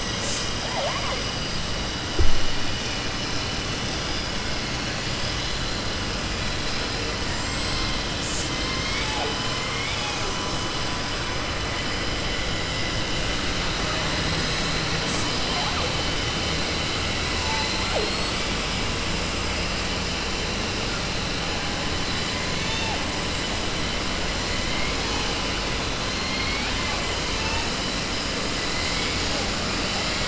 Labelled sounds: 9.6	10.2	killer whale, southern resident, 1.2 to 3.8 kHz
17.3	18.4	killer whale, southern resident, 5.3 to 8.0 kHz
22.5	23.0	killer whale, southern resident, 0.69 to 4.5 kHz
26.2	27.0	killer whale, southern resident, 0.80 to 3.2 kHz

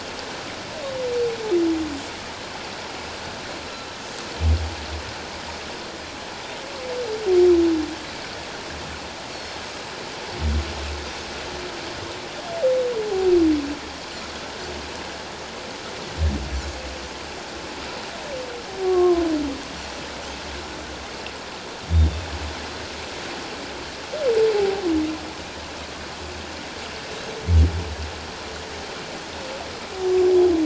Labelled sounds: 9.3	9.6	Pacific white-sided dolphin, 4.2 to 5.6 kHz
18.8	19.2	humpback whale, 0.97 to 1.2 kHz
24.5	24.8	humpback whale, 0.78 to 0.88 kHz

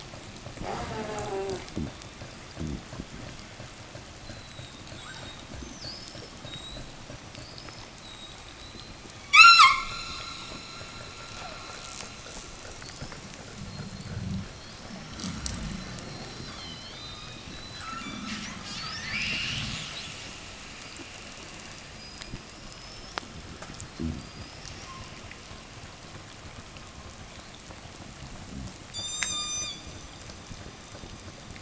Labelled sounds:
0.4	2.0	killer whale, southern resident, call S04, 0 to 8.0 kHz
4.2	8.9	killer whale, 2.5 to 8.0 kHz
9.2	10.0	killer whale, southern resident, 0.43 to 8.0 kHz
12.3	25.4	killer whale, southern resident, 0.77 to 8.0 kHz
23.8	24.5	fish, 0 to 0.50 kHz
28.8	30.0	killer whale, southern resident, 0.72 to 8.0 kHz

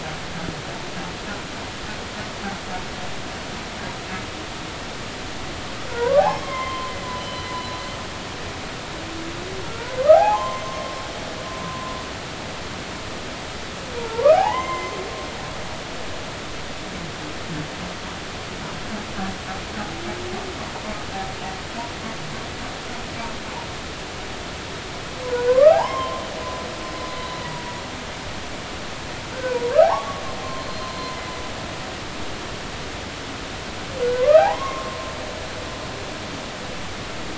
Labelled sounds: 5.9	7.8	humpback whale, 0.80 to 4.1 kHz
9.7	10.8	humpback whale, 0.80 to 6.4 kHz
11.6	11.9	humpback whale, 0.96 to 1.1 kHz
14.0	15.0	humpback whale, 0.80 to 2.9 kHz
25.3	26.2	humpback whale, 0.80 to 3.2 kHz
29.3	30.2	humpback whale, 0.80 to 1.7 kHz
30.6	31.3	humpback whale, 2.0 to 4.3 kHz
34.2	35.0	humpback whale, 0.80 to 2.2 kHz

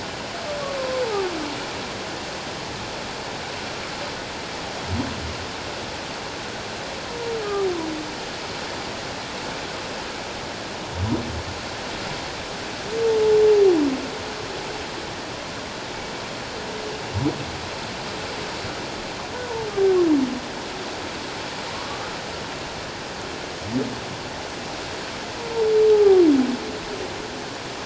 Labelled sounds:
21.7	22.0	humpback whale, 0.97 to 1.3 kHz
25.9	26.2	humpback whale, 0.78 to 0.88 kHz

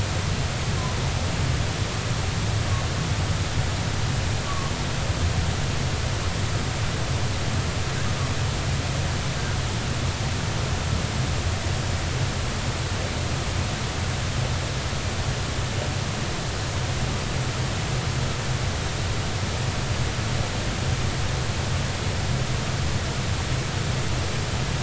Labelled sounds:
4.5	4.7	humpback whale, 1.1 to 1.2 kHz

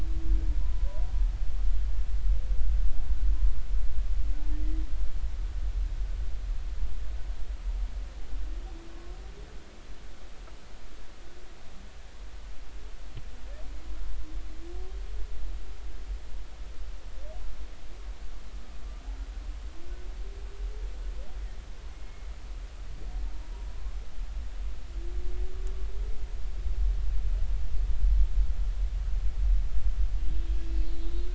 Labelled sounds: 0.6	0.9	humpback whale, 0.96 to 1.1 kHz
21.9	22.3	humpback whale, 2.1 to 2.2 kHz
30.9	31.2	humpback whale, 3.9 to 4.1 kHz

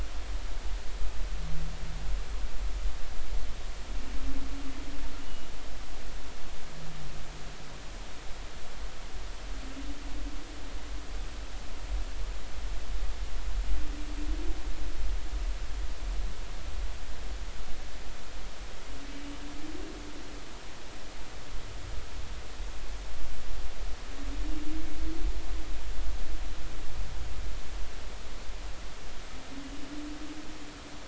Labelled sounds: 5.2	5.5	humpback whale, 2.8 to 3.0 kHz

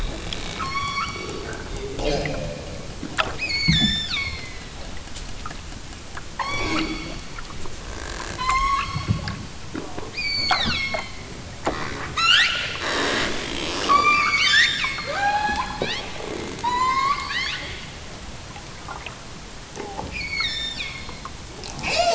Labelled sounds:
0.6	1.2	killer whale, southern Alaska resident, 0.87 to 7.1 kHz
3.3	4.5	killer whale, southern Alaska resident, 0.78 to 8.0 kHz
6.3	6.9	killer whale, southern Alaska resident, 0.50 to 7.4 kHz
8.4	9.0	killer whale, southern Alaska resident, 0.92 to 8.0 kHz
10.1	11.0	killer whale, southern Alaska resident, 0.46 to 8.0 kHz
12.1	12.6	killer whale, southern Alaska resident, 1.0 to 8.0 kHz
13.9	16.2	killer whale, southern Alaska resident, 0.41 to 8.0 kHz
16.6	17.7	killer whale, southern Alaska resident, 0.69 to 8.0 kHz
20.1	21.2	killer whale, southern Alaska resident, 1.2 to 8.0 kHz

